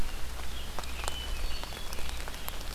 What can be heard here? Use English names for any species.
Scarlet Tanager, Hermit Thrush